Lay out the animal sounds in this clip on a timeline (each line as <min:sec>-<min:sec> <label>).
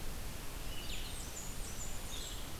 0:00.0-0:02.6 Blue-headed Vireo (Vireo solitarius)
0:00.0-0:02.6 Red-eyed Vireo (Vireo olivaceus)
0:00.7-0:02.4 Blackburnian Warbler (Setophaga fusca)